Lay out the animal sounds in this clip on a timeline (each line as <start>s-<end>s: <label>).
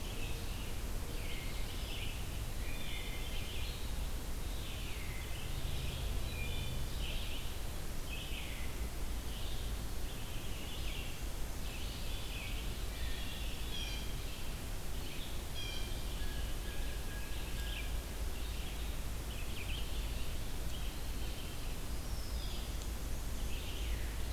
0.0s-19.9s: Red-eyed Vireo (Vireo olivaceus)
2.5s-3.3s: Wood Thrush (Hylocichla mustelina)
6.2s-6.8s: Wood Thrush (Hylocichla mustelina)
12.6s-13.5s: Wood Thrush (Hylocichla mustelina)
13.6s-14.2s: Blue Jay (Cyanocitta cristata)
15.5s-18.0s: Blue Jay (Cyanocitta cristata)
19.6s-21.5s: Eastern Wood-Pewee (Contopus virens)
20.3s-24.3s: Red-eyed Vireo (Vireo olivaceus)
21.9s-22.8s: Wood Thrush (Hylocichla mustelina)
23.7s-24.3s: Veery (Catharus fuscescens)